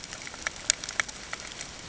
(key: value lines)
label: ambient
recorder: HydroMoth